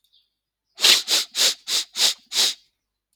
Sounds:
Sniff